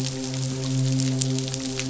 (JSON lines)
{"label": "biophony, midshipman", "recorder": "SoundTrap 500"}